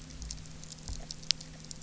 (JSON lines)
{"label": "anthrophony, boat engine", "recorder": "SoundTrap 300"}